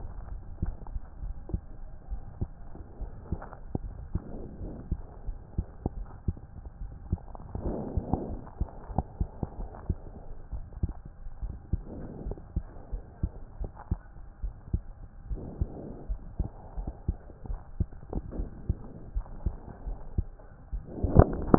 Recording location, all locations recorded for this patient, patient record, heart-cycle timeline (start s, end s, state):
aortic valve (AV)
aortic valve (AV)+pulmonary valve (PV)+tricuspid valve (TV)+mitral valve (MV)
#Age: Adolescent
#Sex: Male
#Height: 136.0 cm
#Weight: 42.4 kg
#Pregnancy status: False
#Murmur: Absent
#Murmur locations: nan
#Most audible location: nan
#Systolic murmur timing: nan
#Systolic murmur shape: nan
#Systolic murmur grading: nan
#Systolic murmur pitch: nan
#Systolic murmur quality: nan
#Diastolic murmur timing: nan
#Diastolic murmur shape: nan
#Diastolic murmur grading: nan
#Diastolic murmur pitch: nan
#Diastolic murmur quality: nan
#Outcome: Normal
#Campaign: 2015 screening campaign
0.00	9.29	unannotated
9.29	9.56	diastole
9.56	9.68	S1
9.68	9.86	systole
9.86	9.96	S2
9.96	10.52	diastole
10.52	10.64	S1
10.64	10.81	systole
10.81	10.93	S2
10.93	11.42	diastole
11.42	11.54	S1
11.54	11.74	systole
11.74	11.84	S2
11.84	12.26	diastole
12.26	12.36	S1
12.36	12.55	systole
12.55	12.66	S2
12.66	12.92	diastole
12.92	13.04	S1
13.04	13.24	systole
13.24	13.32	S2
13.32	13.62	diastole
13.62	13.72	S1
13.72	13.87	systole
13.87	14.00	S2
14.00	14.44	diastole
14.44	14.54	S1
14.54	14.72	systole
14.72	14.84	S2
14.84	15.30	diastole
15.30	15.42	S1
15.42	15.62	systole
15.62	15.72	S2
15.72	16.10	diastole
16.10	16.20	S1
16.20	16.42	systole
16.42	16.50	S2
16.50	16.75	diastole
16.75	16.88	S1
16.88	17.05	systole
17.05	17.19	S2
17.19	17.48	diastole
17.48	17.60	S1
17.60	17.78	systole
17.78	17.88	S2
17.88	18.33	diastole
18.33	18.48	S1
18.48	18.64	systole
18.64	18.75	S2
18.75	19.16	diastole
19.16	19.24	S1
19.24	19.44	systole
19.44	19.56	S2
19.56	19.88	diastole
19.88	19.98	S1
19.98	20.18	systole
20.18	20.28	S2
20.28	20.72	diastole
20.72	20.84	S1
20.84	21.58	unannotated